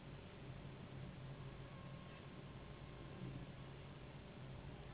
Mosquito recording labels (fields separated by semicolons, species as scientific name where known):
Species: Anopheles gambiae s.s.; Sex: female; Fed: unfed; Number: one; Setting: insect culture